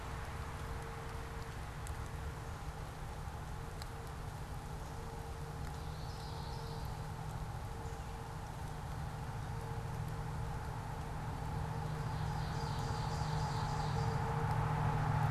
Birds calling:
Ovenbird (Seiurus aurocapilla)
Common Yellowthroat (Geothlypis trichas)

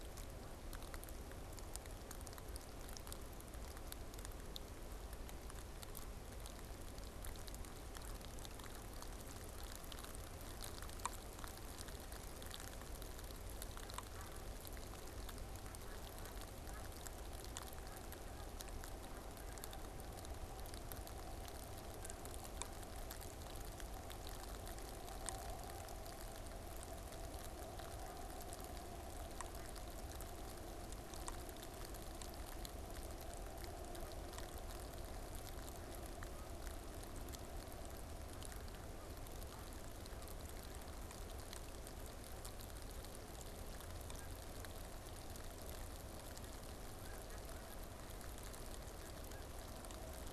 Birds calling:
Snow Goose (Anser caerulescens)

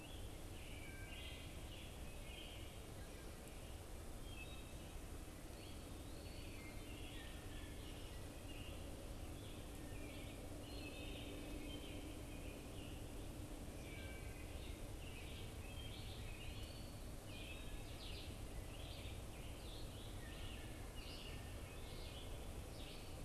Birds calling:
Scarlet Tanager (Piranga olivacea)
Red-eyed Vireo (Vireo olivaceus)
Wood Thrush (Hylocichla mustelina)
American Robin (Turdus migratorius)

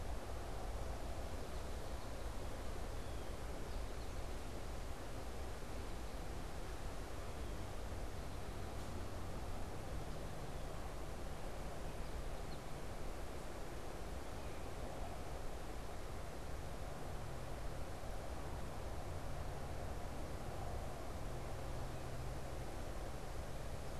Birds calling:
unidentified bird
American Goldfinch (Spinus tristis)
Blue Jay (Cyanocitta cristata)

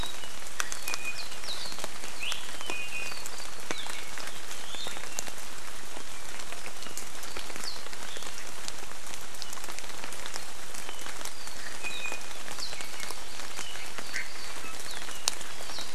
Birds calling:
Hawaii Amakihi (Chlorodrepanis virens)
Iiwi (Drepanis coccinea)

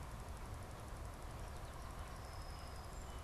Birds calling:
Song Sparrow (Melospiza melodia)

